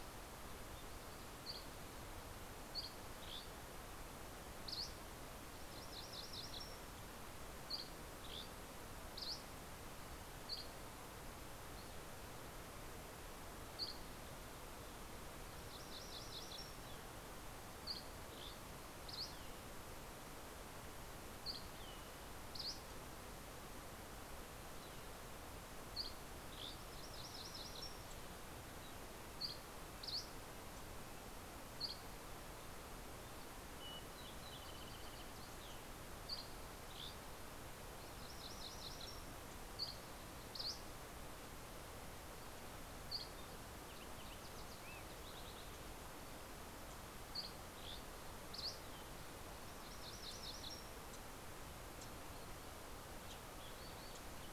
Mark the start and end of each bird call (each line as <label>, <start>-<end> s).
Dusky Flycatcher (Empidonax oberholseri), 0.0-4.9 s
MacGillivray's Warbler (Geothlypis tolmiei), 5.1-7.2 s
Dusky Flycatcher (Empidonax oberholseri), 7.1-11.2 s
Dusky Flycatcher (Empidonax oberholseri), 13.1-14.1 s
MacGillivray's Warbler (Geothlypis tolmiei), 14.8-17.0 s
Dusky Flycatcher (Empidonax oberholseri), 17.3-19.7 s
Dusky Flycatcher (Empidonax oberholseri), 21.0-23.3 s
Dusky Flycatcher (Empidonax oberholseri), 25.3-27.1 s
MacGillivray's Warbler (Geothlypis tolmiei), 26.5-28.3 s
Dusky Flycatcher (Empidonax oberholseri), 29.2-30.9 s
Dusky Flycatcher (Empidonax oberholseri), 31.3-32.6 s
Fox Sparrow (Passerella iliaca), 33.2-36.1 s
Dusky Flycatcher (Empidonax oberholseri), 35.7-37.8 s
MacGillivray's Warbler (Geothlypis tolmiei), 37.7-39.4 s
Dusky Flycatcher (Empidonax oberholseri), 39.4-41.5 s
Dusky Flycatcher (Empidonax oberholseri), 42.5-43.4 s
Fox Sparrow (Passerella iliaca), 43.4-46.4 s
Dusky Flycatcher (Empidonax oberholseri), 47.1-49.4 s
MacGillivray's Warbler (Geothlypis tolmiei), 49.4-50.9 s
Wilson's Warbler (Cardellina pusilla), 50.8-52.8 s
Wilson's Warbler (Cardellina pusilla), 53.2-54.0 s